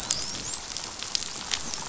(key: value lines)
label: biophony, dolphin
recorder: SoundTrap 500